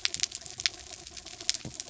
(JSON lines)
{"label": "anthrophony, mechanical", "recorder": "SoundTrap 300"}